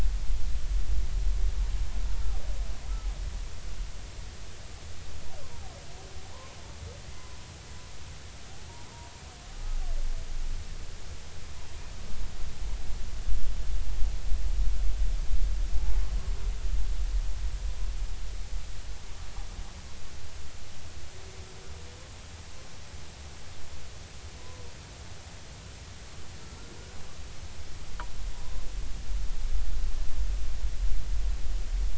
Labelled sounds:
5.4	5.7	humpback whale, 0.80 to 1.1 kHz
24.4	24.6	humpback whale, 0.96 to 1.1 kHz

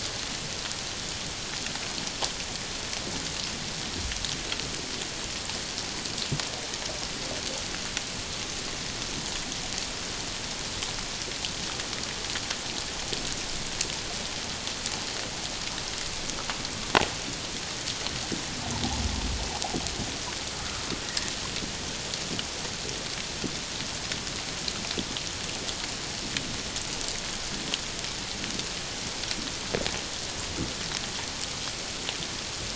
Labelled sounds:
20.6	20.8	water noise, 1.2 to 1.5 kHz

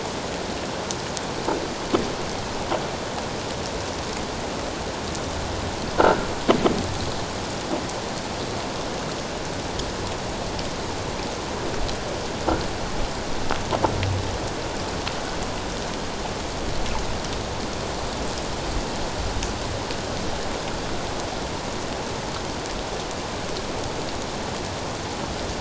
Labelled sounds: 6.0	6.3	croaking sound likely from a nearby submerged object, 1.3 to 1.7 kHz

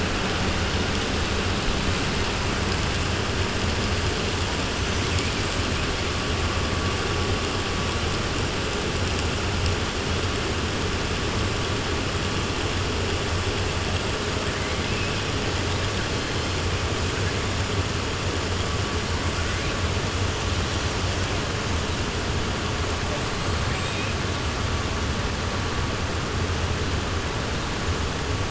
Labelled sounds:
23.6	24.1	killer whale, 1.8 to 4.2 kHz

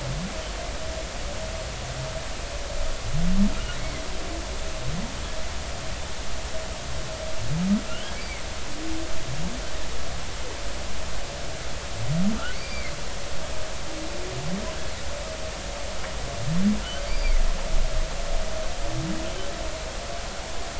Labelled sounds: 7.9	8.4	humpback whale, 2.0 to 3.4 kHz
12.5	12.9	humpback whale, 2.0 to 4.8 kHz
17.0	17.3	humpback whale, 4.5 to 4.9 kHz

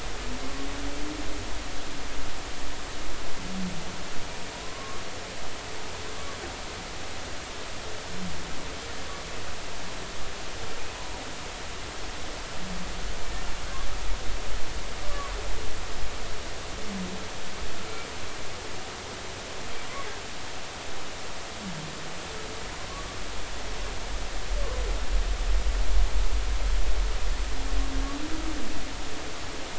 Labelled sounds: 4.5	5.0	humpback whale, 0.93 to 1.2 kHz
10.9	11.2	humpback whale, 0.90 to 1.0 kHz
15.1	15.4	humpback whale, 0.96 to 1.2 kHz

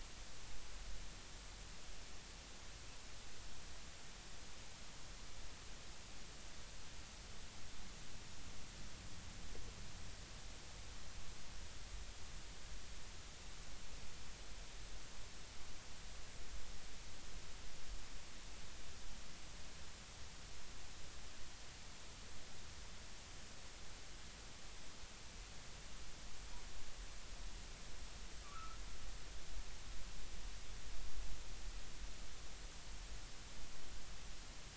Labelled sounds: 28.4	28.8	humpback whale, 1.1 to 1.4 kHz

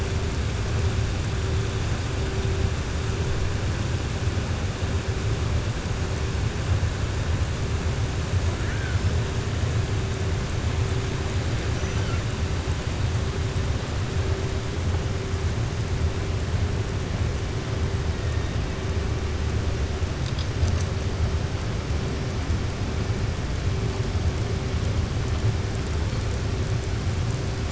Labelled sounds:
11.8	12.2	killer whale, southern resident, 1.3 to 3.2 kHz

